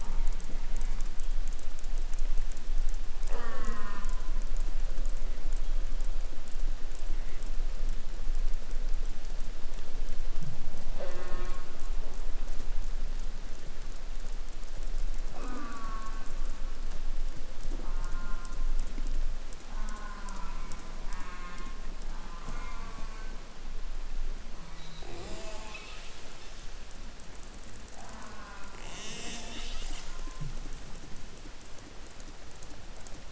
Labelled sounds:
0.0	1.2	killer whale, southern resident, J pod, call S04, 0.44 to 3.5 kHz
3.2	4.5	killer whale, southern resident, J pod, call S04, 0.17 to 6.8 kHz
10.9	12.0	killer whale, southern resident, J pod, call S04, 0.29 to 5.0 kHz
15.3	16.8	killer whale, southern resident, J pod, call S04, 0.04 to 3.0 kHz
17.7	18.9	killer whale, southern resident, J pod, call S04, 0.29 to 2.3 kHz
19.7	23.5	killer whale, southern resident, J pod, call S04, 0 to 8.0 kHz
25.0	26.0	killer whale, southern resident, J pod, call S04, 0.15 to 8.0 kHz
27.9	28.9	killer whale, southern resident, J pod, call S04, 0.32 to 2.8 kHz
28.7	30.1	killer whale, 0.17 to 8.0 kHz

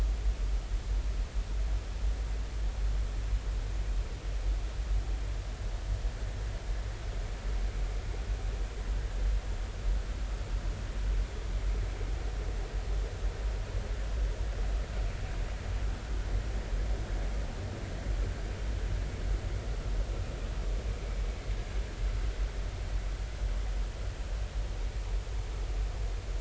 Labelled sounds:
21.0	21.2	vessel noise, 2.2 to 2.4 kHz

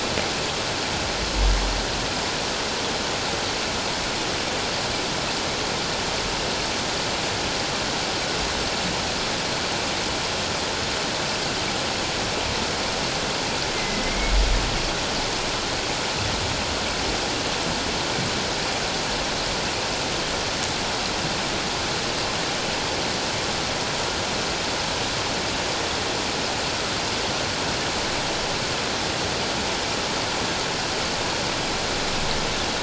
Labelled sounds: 13.7	14.3	humpback whale, 2.0 to 2.2 kHz

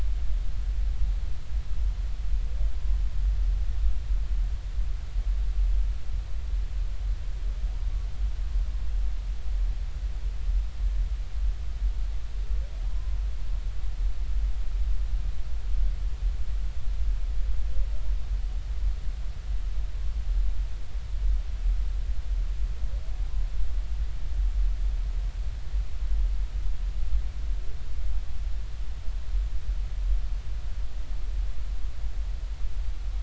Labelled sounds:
12.9	13.2	humpback whale, 0.96 to 1.1 kHz

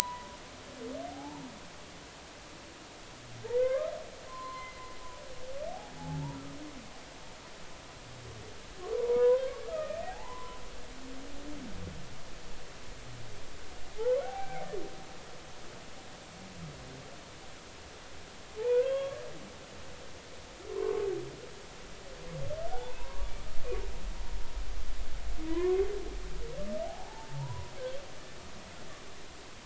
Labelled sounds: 0.0	0.4	humpback whale, 0.90 to 1.1 kHz
1.1	1.4	humpback whale, 0.80 to 1.0 kHz
3.5	4.8	humpback whale, 0.96 to 4.2 kHz
6.0	6.4	humpback whale, 0.80 to 1.0 kHz
8.9	10.6	humpback whale, 0.80 to 2.6 kHz
14.0	14.7	humpback whale, 0.80 to 2.4 kHz
18.6	19.2	humpback whale, 0.83 to 3.4 kHz
20.7	21.0	humpback whale, 0.96 to 1.2 kHz
22.7	23.3	humpback whale, 0.80 to 1.5 kHz
25.5	25.8	humpback whale, 0.93 to 2.2 kHz
26.8	27.7	humpback whale, 0.80 to 1.1 kHz

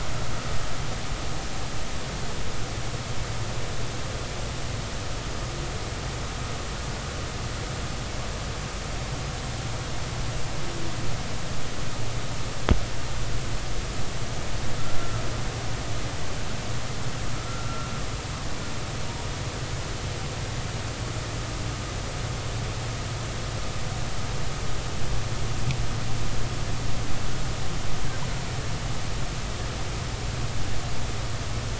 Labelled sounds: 15.0	15.2	killer whale, Bigg's (transient), 1.3 to 1.4 kHz
17.3	17.9	killer whale, Bigg's (transient), 1.2 to 1.5 kHz

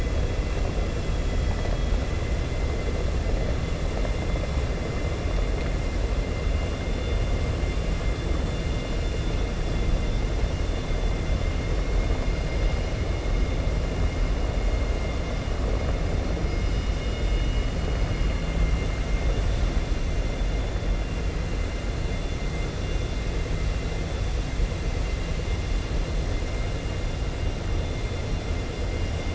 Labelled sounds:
1.0	2.0	vessel noise, 0.90 to 4.0 kHz
17.0	17.9	vessel noise, 2.1 to 4.3 kHz

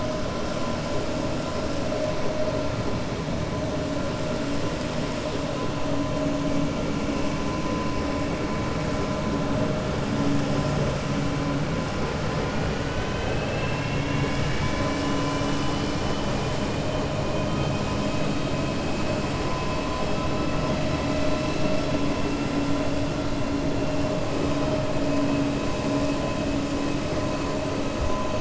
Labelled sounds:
17.3	17.8	vessel noise, 2.5 to 3.8 kHz

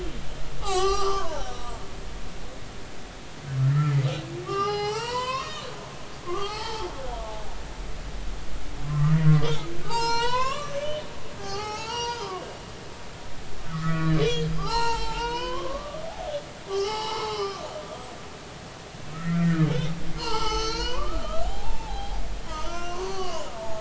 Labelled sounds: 0.6	1.8	humpback whale, 0.80 to 8.0 kHz
3.6	7.0	humpback whale, 0.80 to 6.4 kHz
8.9	10.8	humpback whale, 0.80 to 8.0 kHz
11.4	12.4	humpback whale, 0.80 to 6.9 kHz
13.7	16.1	humpback whale, 0.80 to 5.6 kHz
16.7	17.7	humpback whale, 0.80 to 5.5 kHz
19.1	19.7	humpback whale, 1.2 to 2.1 kHz
20.2	23.7	humpback whale, 0.80 to 6.4 kHz

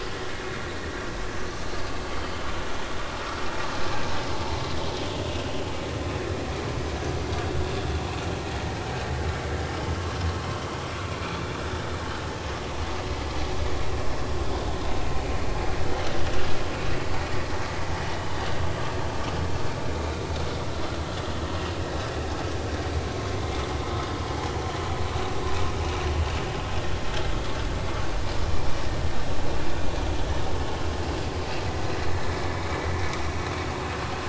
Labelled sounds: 2.2	2.5	vessel noise, 3.0 to 3.2 kHz
15.9	16.1	vessel noise, 3.0 to 3.2 kHz

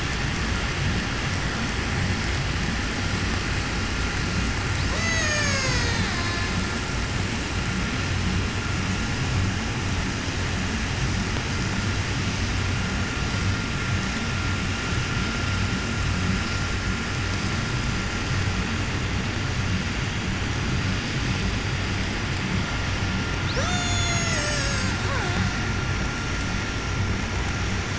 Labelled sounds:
4.7	6.9	killer whale, Bigg's (transient), call T03, 0.17 to 8.0 kHz
23.4	25.8	killer whale, 0.09 to 8.0 kHz

